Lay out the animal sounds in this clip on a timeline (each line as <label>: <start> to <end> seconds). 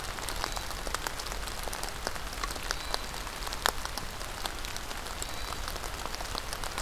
Hermit Thrush (Catharus guttatus): 0.0 to 6.8 seconds